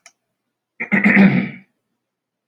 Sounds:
Throat clearing